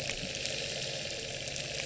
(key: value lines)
label: anthrophony, boat engine
recorder: SoundTrap 300